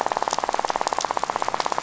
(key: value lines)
label: biophony, rattle
recorder: SoundTrap 500